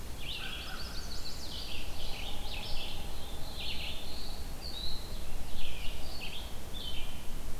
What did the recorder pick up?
Red-eyed Vireo, American Crow, Chimney Swift, Black-throated Blue Warbler